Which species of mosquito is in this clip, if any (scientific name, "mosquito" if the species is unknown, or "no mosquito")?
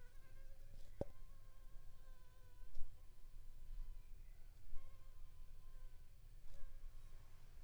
Anopheles funestus s.l.